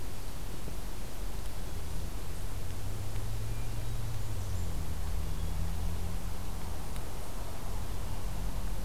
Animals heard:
forest ambience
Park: Marsh-Billings-Rockefeller National Historical Park